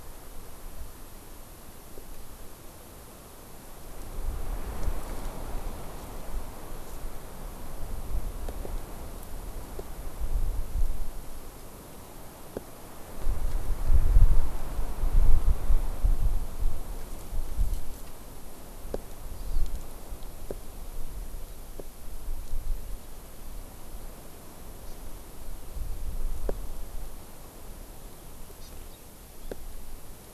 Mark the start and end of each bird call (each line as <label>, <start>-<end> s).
Hawaii Amakihi (Chlorodrepanis virens), 19.4-19.6 s
Hawaii Amakihi (Chlorodrepanis virens), 24.9-25.0 s
Hawaii Amakihi (Chlorodrepanis virens), 28.6-29.0 s